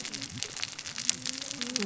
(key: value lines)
label: biophony, cascading saw
recorder: SoundTrap 600 or HydroMoth